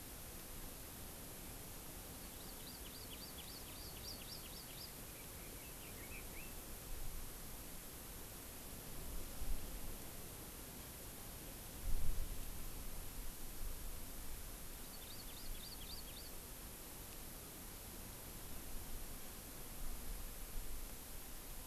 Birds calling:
Red-billed Leiothrix (Leiothrix lutea), Hawaii Amakihi (Chlorodrepanis virens)

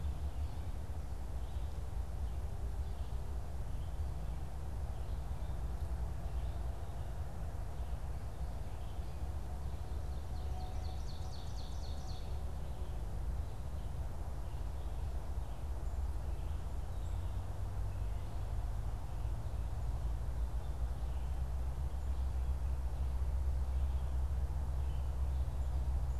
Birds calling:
Ovenbird (Seiurus aurocapilla)

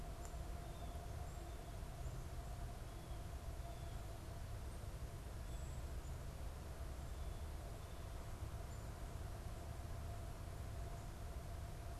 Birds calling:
Black-capped Chickadee (Poecile atricapillus)

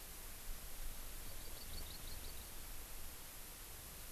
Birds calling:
Hawaii Amakihi (Chlorodrepanis virens)

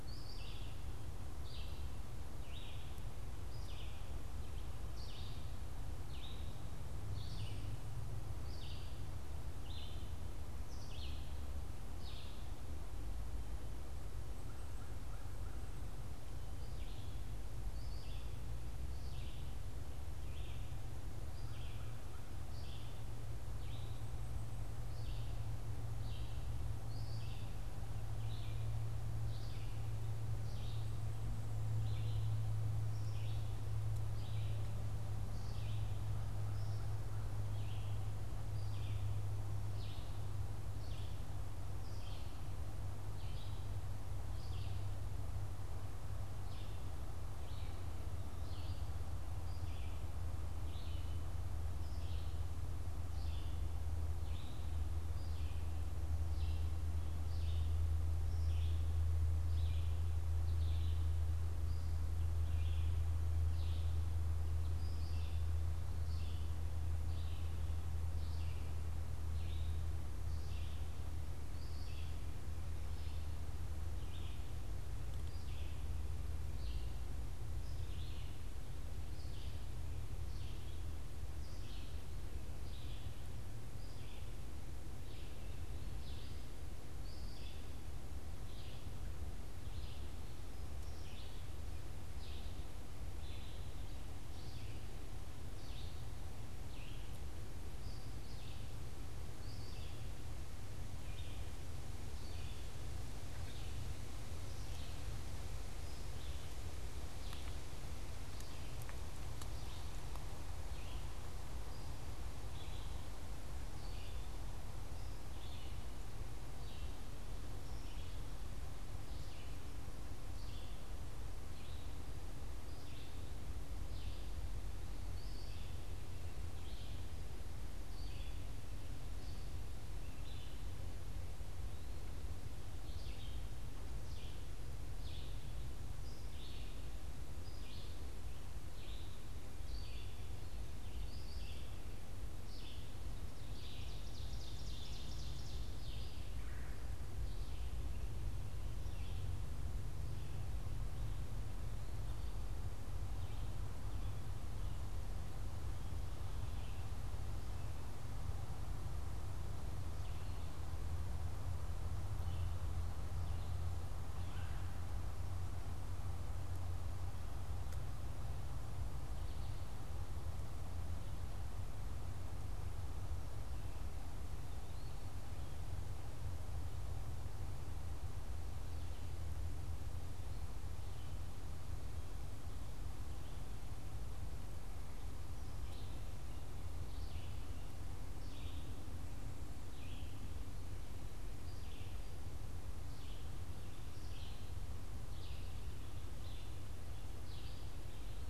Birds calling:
Red-bellied Woodpecker (Melanerpes carolinus), Red-eyed Vireo (Vireo olivaceus), Ovenbird (Seiurus aurocapilla), Eastern Wood-Pewee (Contopus virens), American Crow (Corvus brachyrhynchos)

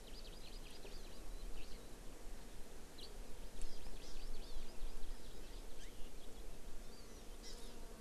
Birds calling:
House Finch (Haemorhous mexicanus), Hawaii Amakihi (Chlorodrepanis virens), Eurasian Skylark (Alauda arvensis)

